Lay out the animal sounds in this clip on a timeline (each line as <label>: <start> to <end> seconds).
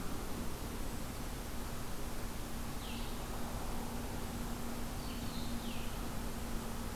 Blue-headed Vireo (Vireo solitarius): 0.0 to 7.0 seconds